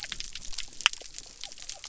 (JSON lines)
{"label": "biophony", "recorder": "SoundTrap 300"}